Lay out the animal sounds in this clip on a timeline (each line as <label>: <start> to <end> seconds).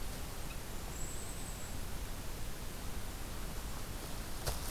Golden-crowned Kinglet (Regulus satrapa): 0.5 to 1.9 seconds